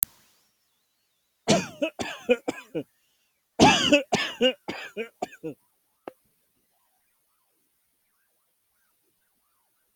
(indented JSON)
{
  "expert_labels": [
    {
      "quality": "good",
      "cough_type": "dry",
      "dyspnea": false,
      "wheezing": false,
      "stridor": false,
      "choking": false,
      "congestion": false,
      "nothing": true,
      "diagnosis": "COVID-19",
      "severity": "mild"
    }
  ],
  "age": 42,
  "gender": "male",
  "respiratory_condition": true,
  "fever_muscle_pain": true,
  "status": "COVID-19"
}